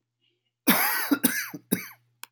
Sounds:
Cough